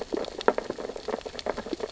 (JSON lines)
{"label": "biophony, sea urchins (Echinidae)", "recorder": "SoundTrap 600 or HydroMoth"}